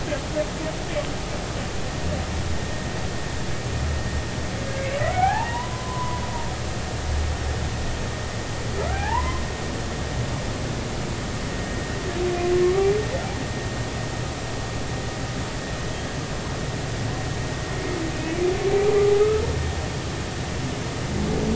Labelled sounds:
5.1	6.2	humpback whale, 0.80 to 3.0 kHz
8.9	9.4	humpback whale, 0.80 to 2.1 kHz
12.6	12.9	humpback whale, 1.0 to 1.2 kHz
18.1	18.4	humpback whale, 2.5 to 2.6 kHz

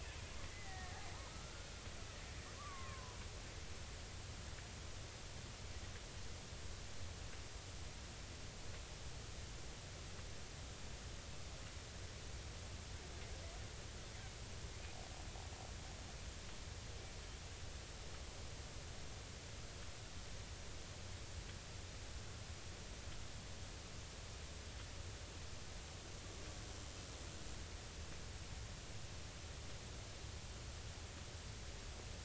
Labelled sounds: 0.5	0.9	killer whale, Bigg's (transient), 1.8 to 2.1 kHz
1.3	1.7	killer whale, Bigg's (transient), 1.2 to 1.6 kHz
2.5	3.2	killer whale, Bigg's (transient), 0.93 to 2.4 kHz

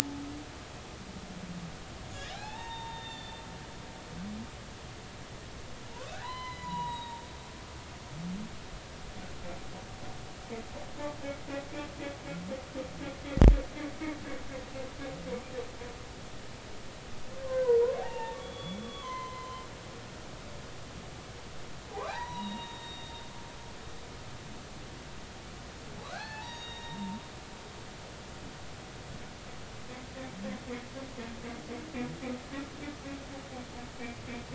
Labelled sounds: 2.3	3.4	humpback whale, 0.80 to 4.5 kHz
6.2	7.2	humpback whale, 0.83 to 5.1 kHz
17.4	19.6	humpback whale, 0.80 to 3.5 kHz
21.9	23.2	humpback whale, 0.80 to 4.1 kHz
26.0	27.1	humpback whale, 0.80 to 6.7 kHz

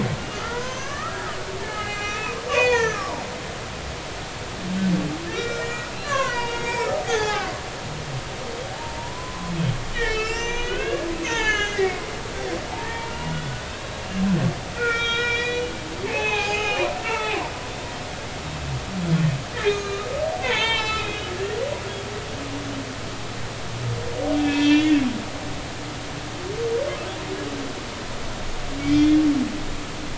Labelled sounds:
0.3	1.4	humpback whale, 0.93 to 6.6 kHz
1.6	3.2	humpback whale, 0.83 to 5.9 kHz
5.3	7.5	humpback whale, 0.80 to 6.7 kHz
8.8	11.9	humpback whale, 0.86 to 6.6 kHz
12.7	14.0	humpback whale, 0.80 to 3.9 kHz
14.8	15.7	humpback whale, 1.3 to 6.1 kHz
16.0	17.4	humpback whale, 0.80 to 6.5 kHz
19.5	20.1	humpback whale, 1.2 to 6.6 kHz
20.4	21.3	humpback whale, 0.83 to 7.1 kHz
24.4	25.0	humpback whale, 1.7 to 6.0 kHz
28.8	29.2	humpback whale, 2.2 to 3.7 kHz

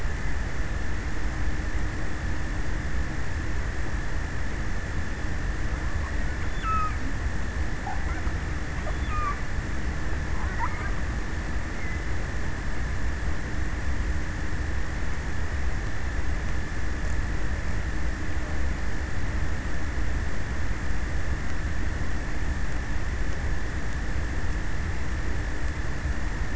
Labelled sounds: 6.0	7.4	killer whale, offshore, 0 to 6.2 kHz

